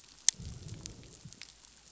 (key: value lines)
label: biophony, growl
recorder: SoundTrap 500